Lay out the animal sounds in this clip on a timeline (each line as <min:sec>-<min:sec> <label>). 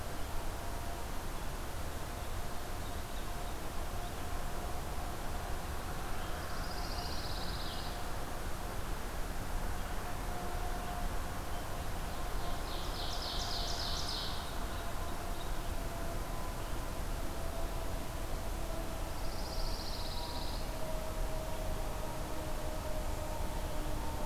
0:06.3-0:07.9 Pine Warbler (Setophaga pinus)
0:12.4-0:14.4 Ovenbird (Seiurus aurocapilla)
0:19.1-0:20.6 Pine Warbler (Setophaga pinus)